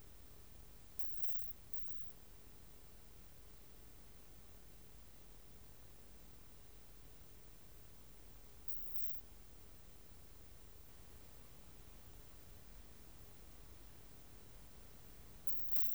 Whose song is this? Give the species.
Isophya modestior